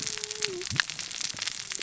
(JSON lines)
{"label": "biophony, cascading saw", "recorder": "SoundTrap 600 or HydroMoth"}